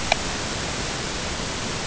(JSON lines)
{"label": "ambient", "recorder": "HydroMoth"}